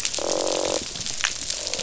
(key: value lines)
label: biophony, croak
recorder: SoundTrap 500